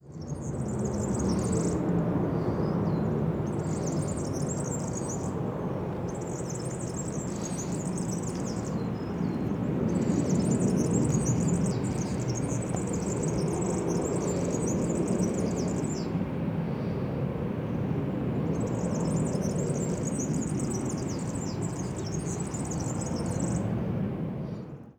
Are there birds around?
yes